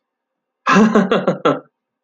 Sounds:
Laughter